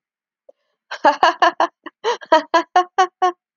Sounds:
Laughter